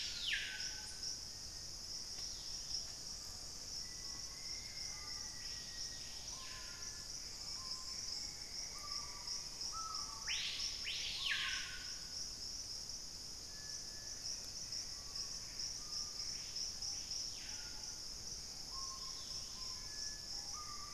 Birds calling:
Dusky-capped Greenlet (Pachysylvia hypoxantha), Buff-throated Woodcreeper (Xiphorhynchus guttatus), Black-faced Antthrush (Formicarius analis), Gray Antbird (Cercomacra cinerascens), unidentified bird, Black-capped Becard (Pachyramphus marginatus), Screaming Piha (Lipaugus vociferans), Hauxwell's Thrush (Turdus hauxwelli)

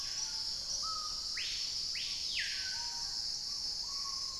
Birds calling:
Screaming Piha (Lipaugus vociferans), Hauxwell's Thrush (Turdus hauxwelli), Black-tailed Trogon (Trogon melanurus), Chestnut-winged Foliage-gleaner (Dendroma erythroptera)

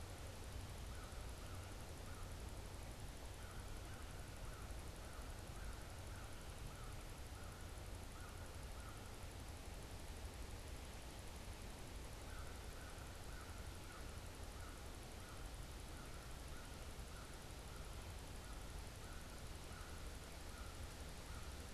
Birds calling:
American Crow (Corvus brachyrhynchos)

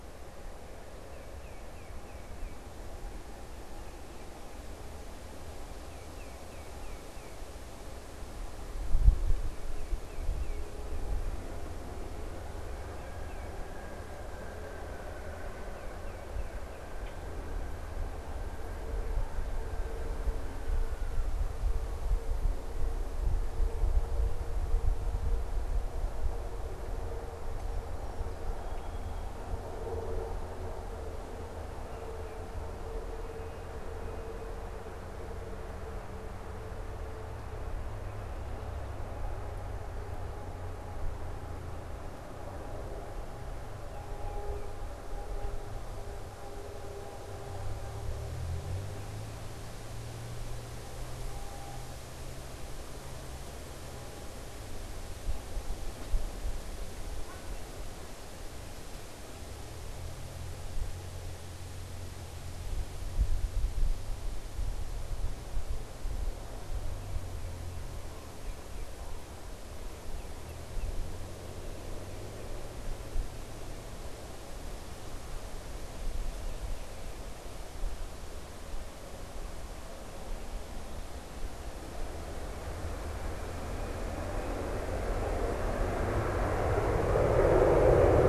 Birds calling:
Tufted Titmouse (Baeolophus bicolor), Song Sparrow (Melospiza melodia), unidentified bird

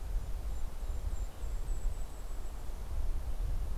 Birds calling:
Western Tanager (Piranga ludoviciana), Golden-crowned Kinglet (Regulus satrapa), Mountain Chickadee (Poecile gambeli)

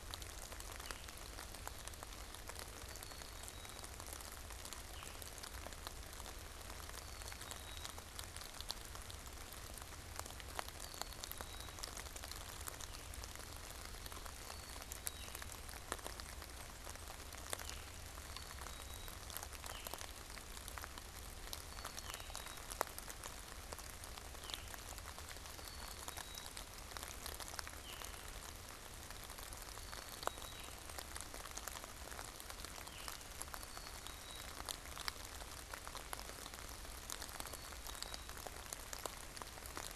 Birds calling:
Veery (Catharus fuscescens), Black-capped Chickadee (Poecile atricapillus)

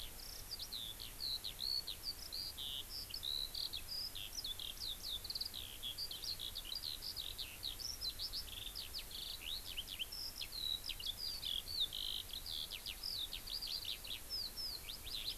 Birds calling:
Eurasian Skylark (Alauda arvensis)

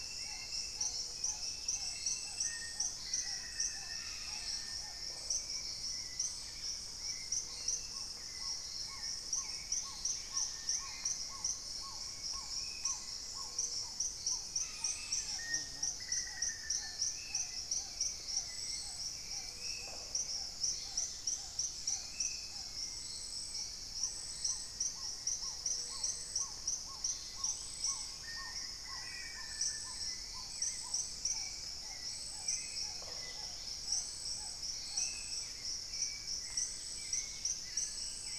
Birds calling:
Dusky-throated Antshrike (Thamnomanes ardesiacus), Dusky-capped Greenlet (Pachysylvia hypoxantha), Black Caracara (Daptrius ater), Black-faced Antthrush (Formicarius analis), unidentified bird, Gray-fronted Dove (Leptotila rufaxilla), Plain-winged Antshrike (Thamnophilus schistaceus), Little Tinamou (Crypturellus soui), Spot-winged Antshrike (Pygiptila stellaris), Red-necked Woodpecker (Campephilus rubricollis), Black-tailed Trogon (Trogon melanurus), Hauxwell's Thrush (Turdus hauxwelli)

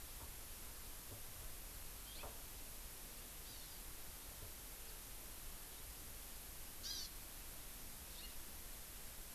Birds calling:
House Finch (Haemorhous mexicanus), Hawaii Amakihi (Chlorodrepanis virens)

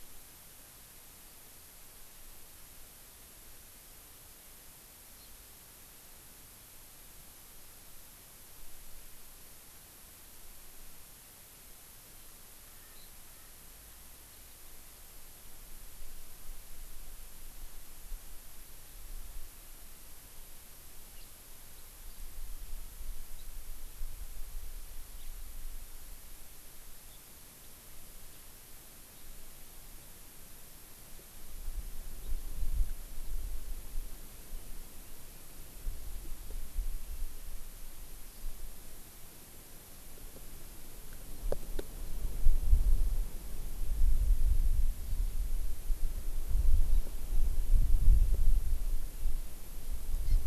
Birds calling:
Hawaii Amakihi (Chlorodrepanis virens), House Finch (Haemorhous mexicanus)

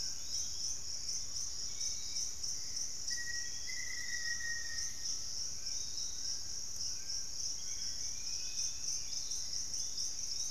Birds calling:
Undulated Tinamou (Crypturellus undulatus), Yellow-margined Flycatcher (Tolmomyias assimilis), Piratic Flycatcher (Legatus leucophaius), unidentified bird, Dusky-capped Flycatcher (Myiarchus tuberculifer), Black-faced Antthrush (Formicarius analis), Fasciated Antshrike (Cymbilaimus lineatus)

